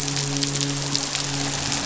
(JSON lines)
{"label": "biophony, midshipman", "recorder": "SoundTrap 500"}